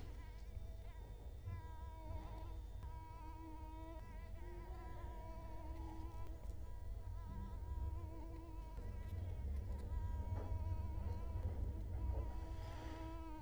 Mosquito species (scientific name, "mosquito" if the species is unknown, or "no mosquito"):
Culex quinquefasciatus